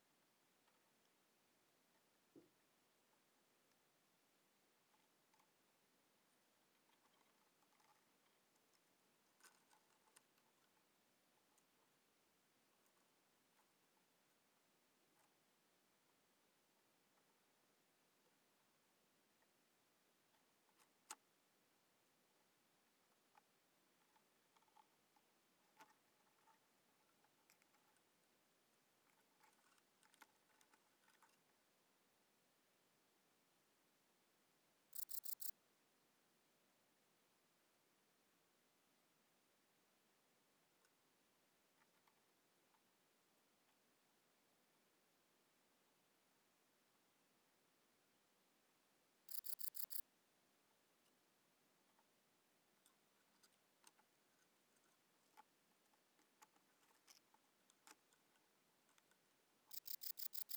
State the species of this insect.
Modestana ebneri